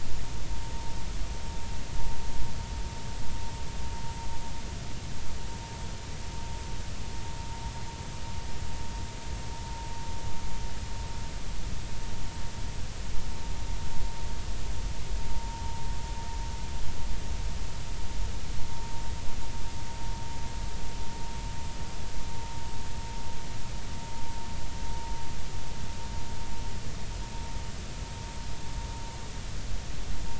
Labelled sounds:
15.3	15.6	vessel noise, 0.90 to 0.96 kHz

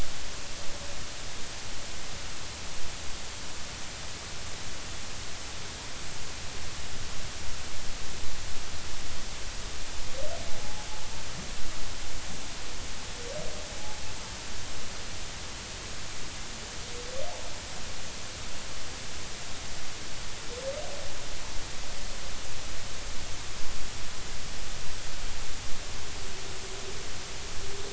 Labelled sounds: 10.6	10.9	humpback whale, 0.80 to 0.90 kHz

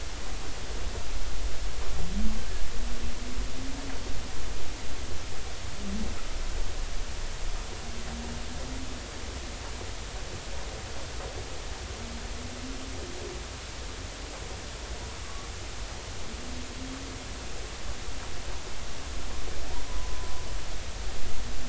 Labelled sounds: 15.2	15.5	humpback whale, 1.1 to 1.2 kHz
19.9	20.4	humpback whale, 0.96 to 1.1 kHz

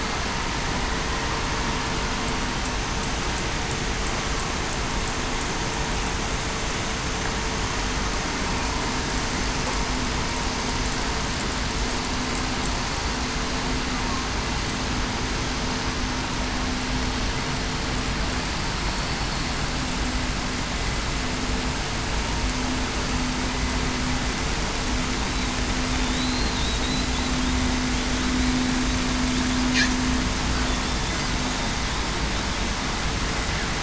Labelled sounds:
26.2	26.6	killer whale, southern resident, 3.8 to 4.3 kHz

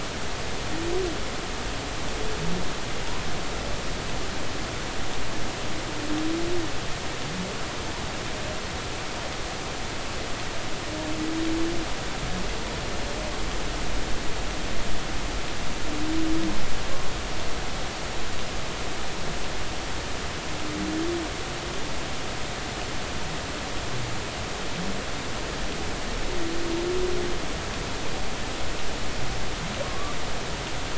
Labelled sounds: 29.8	30.2	humpback whale, 1.0 to 1.2 kHz

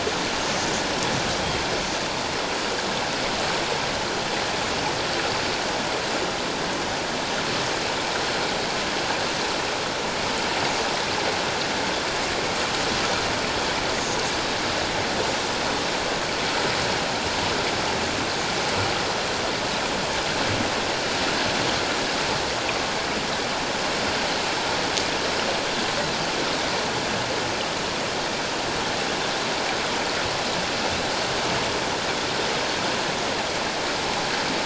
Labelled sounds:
2.5	2.9	Pacific white-sided dolphin, 6.8 to 7.0 kHz

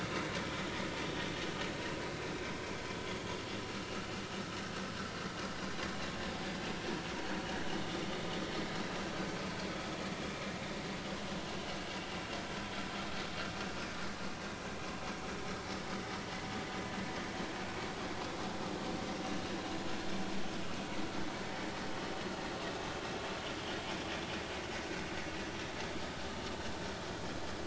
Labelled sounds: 7.8	8.1	vessel noise, 3.4 to 3.6 kHz
9.5	9.7	vessel noise, 2.3 to 2.4 kHz

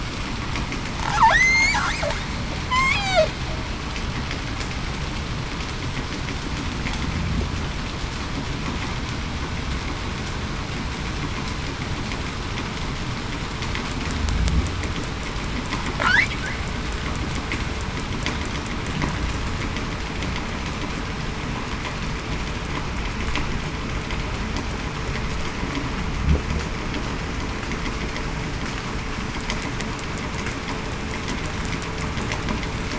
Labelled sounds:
1.3	1.7	killer whale, southern resident, 1.6 to 8.0 kHz
2.7	3.2	killer whale, southern resident, 2.9 to 3.5 kHz

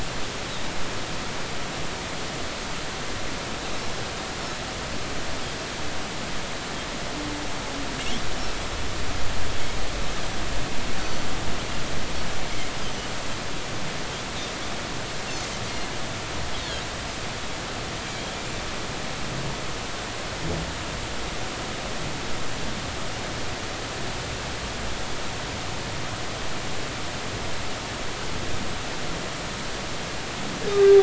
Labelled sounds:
11.0	11.3	Pacific white-sided dolphin, 4.4 to 4.5 kHz
30.7	31.0	humpback whale, 1.1 to 1.3 kHz

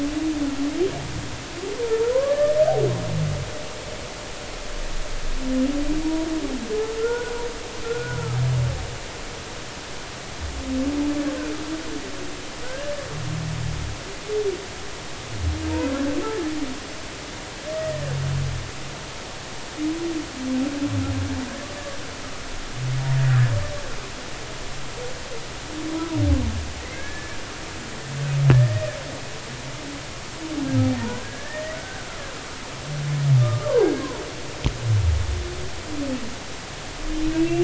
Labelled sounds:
2.0	2.6	humpback whale, 0.93 to 1.9 kHz
7.0	8.4	humpback whale, 1.2 to 1.6 kHz
12.6	12.9	humpback whale, 1.4 to 1.8 kHz
17.7	18.0	humpback whale, 1.8 to 2.0 kHz
26.8	27.4	humpback whale, 1.6 to 2.4 kHz
28.5	28.9	humpback whale, 1.7 to 1.9 kHz
31.0	32.1	humpback whale, 0.83 to 2.0 kHz
33.4	34.2	humpback whale, 0.80 to 1.7 kHz
37.3	37.6	humpback whale, 2.5 to 2.8 kHz

